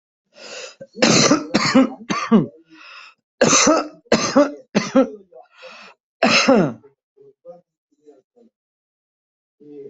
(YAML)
expert_labels:
- quality: ok
  cough_type: dry
  dyspnea: false
  wheezing: false
  stridor: false
  choking: false
  congestion: false
  nothing: true
  diagnosis: upper respiratory tract infection
  severity: unknown
age: 60
gender: female
respiratory_condition: false
fever_muscle_pain: true
status: COVID-19